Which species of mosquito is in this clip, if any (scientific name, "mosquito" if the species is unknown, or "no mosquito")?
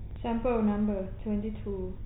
no mosquito